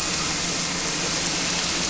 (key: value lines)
label: anthrophony, boat engine
recorder: SoundTrap 300